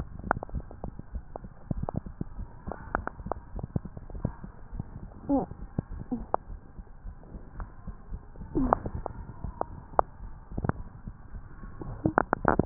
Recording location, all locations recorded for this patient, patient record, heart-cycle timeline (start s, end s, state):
mitral valve (MV)
aortic valve (AV)+pulmonary valve (PV)+tricuspid valve (TV)+mitral valve (MV)
#Age: Child
#Sex: Female
#Height: 141.0 cm
#Weight: 35.1 kg
#Pregnancy status: False
#Murmur: Absent
#Murmur locations: nan
#Most audible location: nan
#Systolic murmur timing: nan
#Systolic murmur shape: nan
#Systolic murmur grading: nan
#Systolic murmur pitch: nan
#Systolic murmur quality: nan
#Diastolic murmur timing: nan
#Diastolic murmur shape: nan
#Diastolic murmur grading: nan
#Diastolic murmur pitch: nan
#Diastolic murmur quality: nan
#Outcome: Abnormal
#Campaign: 2015 screening campaign
0.00	6.45	unannotated
6.45	6.50	diastole
6.50	6.60	S1
6.60	6.76	systole
6.76	6.86	S2
6.86	7.04	diastole
7.04	7.14	S1
7.14	7.32	systole
7.32	7.40	S2
7.40	7.56	diastole
7.56	7.70	S1
7.70	7.86	systole
7.86	7.96	S2
7.96	8.10	diastole
8.10	8.22	S1
8.22	8.33	systole
8.33	8.47	S2
8.47	8.58	diastole
8.58	8.76	S1
8.76	8.90	systole
8.90	9.00	S2
9.00	9.14	diastole
9.14	9.26	S1
9.26	9.42	systole
9.42	9.56	S2
9.56	9.72	diastole
9.72	9.82	S1
9.82	9.94	systole
9.94	10.08	S2
10.08	10.24	diastole
10.24	10.34	S1
10.34	10.52	systole
10.52	10.60	S2
10.60	10.78	diastole
10.78	10.90	S1
10.90	11.06	systole
11.06	11.14	S2
11.14	11.34	diastole
11.34	11.44	S1
11.44	11.62	systole
11.62	11.72	S2
11.72	11.86	diastole
11.86	12.66	unannotated